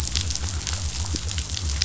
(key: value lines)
label: biophony
recorder: SoundTrap 500